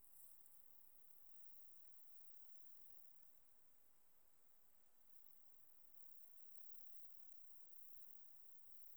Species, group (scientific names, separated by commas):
Platycleis iberica, Orthoptera